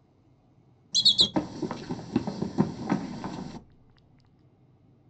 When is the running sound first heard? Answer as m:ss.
0:01